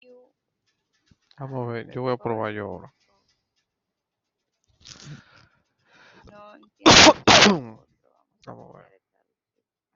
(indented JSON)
{
  "expert_labels": [
    {
      "quality": "ok",
      "cough_type": "wet",
      "dyspnea": false,
      "wheezing": false,
      "stridor": false,
      "choking": false,
      "congestion": false,
      "nothing": true,
      "diagnosis": "lower respiratory tract infection",
      "severity": "mild"
    }
  ],
  "age": 34,
  "gender": "male",
  "respiratory_condition": true,
  "fever_muscle_pain": false,
  "status": "COVID-19"
}